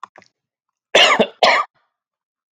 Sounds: Cough